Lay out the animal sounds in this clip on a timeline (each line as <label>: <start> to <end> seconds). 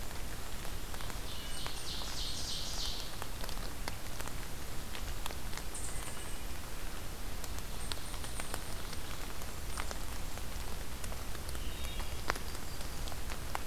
Ovenbird (Seiurus aurocapilla): 1.2 to 3.1 seconds
unidentified call: 1.4 to 2.7 seconds
unidentified call: 5.6 to 6.4 seconds
unidentified call: 7.7 to 9.1 seconds
Wood Thrush (Hylocichla mustelina): 11.5 to 12.1 seconds